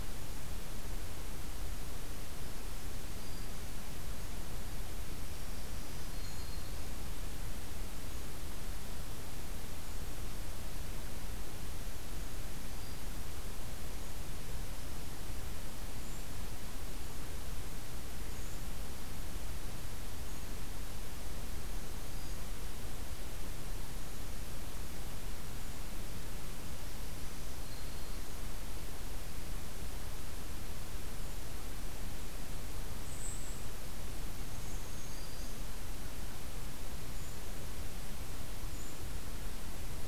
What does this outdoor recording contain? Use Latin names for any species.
Setophaga virens, Regulus satrapa